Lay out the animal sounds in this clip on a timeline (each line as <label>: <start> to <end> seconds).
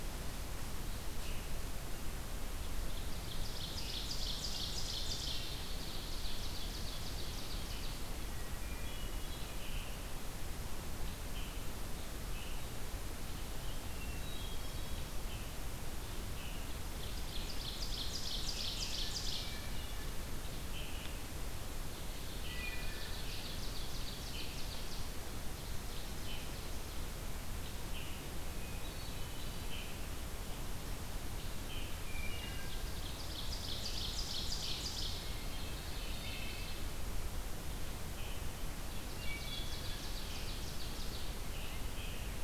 Ovenbird (Seiurus aurocapilla): 2.5 to 8.1 seconds
Hermit Thrush (Catharus guttatus): 4.5 to 5.6 seconds
Hermit Thrush (Catharus guttatus): 8.2 to 9.4 seconds
unidentified call: 9.5 to 10.0 seconds
unidentified call: 11.2 to 11.6 seconds
unidentified call: 12.2 to 12.6 seconds
Hermit Thrush (Catharus guttatus): 13.8 to 15.2 seconds
Ovenbird (Seiurus aurocapilla): 16.8 to 19.6 seconds
Hermit Thrush (Catharus guttatus): 19.2 to 20.1 seconds
unidentified call: 20.6 to 21.3 seconds
Ovenbird (Seiurus aurocapilla): 22.1 to 27.2 seconds
Wood Thrush (Hylocichla mustelina): 22.2 to 23.0 seconds
unidentified call: 27.8 to 28.3 seconds
Hermit Thrush (Catharus guttatus): 28.5 to 29.9 seconds
unidentified call: 31.5 to 32.1 seconds
Wood Thrush (Hylocichla mustelina): 32.0 to 32.9 seconds
Ovenbird (Seiurus aurocapilla): 32.2 to 36.9 seconds
Hermit Thrush (Catharus guttatus): 35.1 to 36.2 seconds
Wood Thrush (Hylocichla mustelina): 36.0 to 37.0 seconds
unidentified call: 38.0 to 38.5 seconds
Ovenbird (Seiurus aurocapilla): 38.8 to 41.5 seconds
Wood Thrush (Hylocichla mustelina): 39.1 to 40.0 seconds
unidentified call: 41.3 to 42.4 seconds